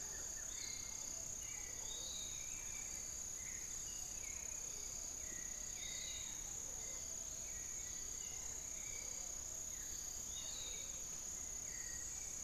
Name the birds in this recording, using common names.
Buff-throated Woodcreeper, Hauxwell's Thrush, Piratic Flycatcher, Spix's Guan, Long-winged Antwren